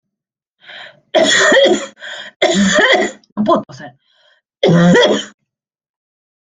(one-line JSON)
{"expert_labels": [{"quality": "ok", "cough_type": "dry", "dyspnea": false, "wheezing": false, "stridor": false, "choking": false, "congestion": false, "nothing": true, "diagnosis": "COVID-19", "severity": "severe"}], "age": 25, "gender": "female", "respiratory_condition": false, "fever_muscle_pain": false, "status": "symptomatic"}